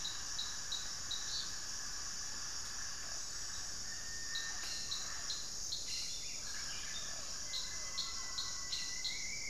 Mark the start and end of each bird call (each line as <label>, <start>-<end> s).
Cobalt-winged Parakeet (Brotogeris cyanoptera), 0.0-5.8 s
Rufous-fronted Antthrush (Formicarius rufifrons), 7.1-9.5 s